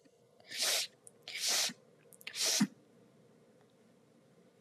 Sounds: Sniff